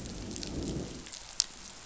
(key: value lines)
label: biophony, growl
recorder: SoundTrap 500